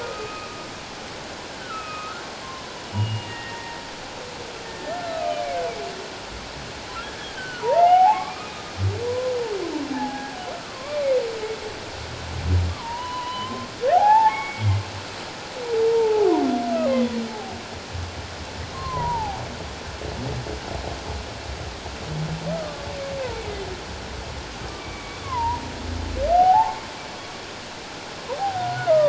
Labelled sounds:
0.0	0.6	humpback whale, 1.2 to 2.7 kHz
1.6	3.8	humpback whale, 0.88 to 2.9 kHz
4.7	5.4	humpback whale, 1.2 to 2.6 kHz
7.3	8.5	humpback whale, 0.78 to 2.4 kHz
9.1	10.4	humpback whale, 0.78 to 1.8 kHz
10.7	11.1	humpback whale, 1.0 to 1.2 kHz
12.7	14.8	humpback whale, 0.78 to 3.4 kHz
15.9	17.2	humpback whale, 0.78 to 2.2 kHz
18.7	19.4	humpback whale, 0.78 to 1.2 kHz
22.5	22.9	humpback whale, 1.1 to 1.3 kHz
24.7	25.6	humpback whale, 0.84 to 2.4 kHz
26.3	26.8	humpback whale, 0.78 to 0.97 kHz
28.4	28.7	humpback whale, 0.78 to 0.88 kHz

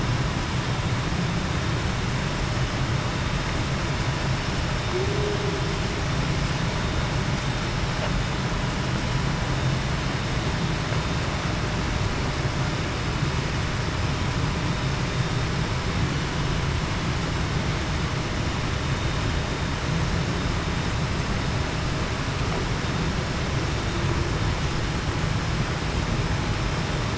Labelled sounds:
4.9	5.4	humpback whale, 0.35 to 0.45 kHz

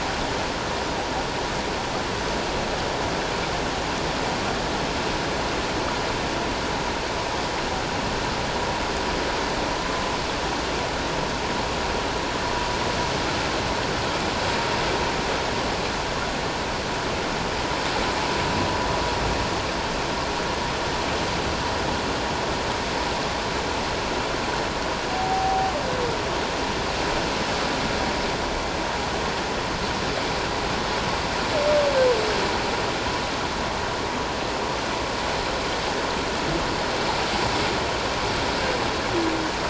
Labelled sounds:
25.1	25.7	humpback whale, 0.78 to 0.81 kHz

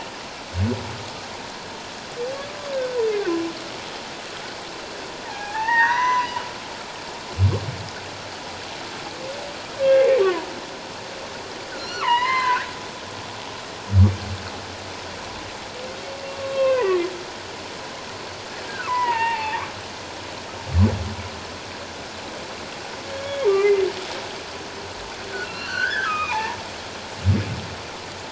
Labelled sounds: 2.7	3.0	humpback whale, 1.5 to 1.7 kHz
5.2	6.4	humpback whale, 0.78 to 6.1 kHz
9.9	10.5	humpback whale, 0.88 to 2.2 kHz
11.8	12.7	humpback whale, 0.88 to 4.4 kHz
16.4	17.0	humpback whale, 0.94 to 2.8 kHz
18.9	19.6	humpback whale, 0.81 to 3.0 kHz
23.2	23.9	humpback whale, 1.9 to 2.5 kHz
25.4	26.6	humpback whale, 0.81 to 4.6 kHz

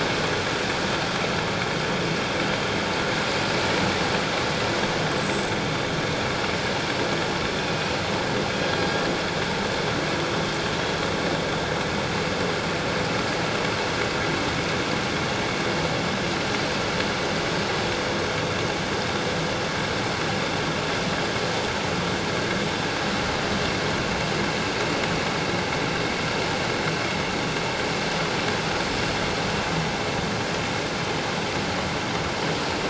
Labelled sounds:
5.2	5.5	killer whale, northern resident, G clan, 7.6 to 8.0 kHz
7.6	7.8	killer whale, northern resident, G clan, 2.4 to 2.5 kHz

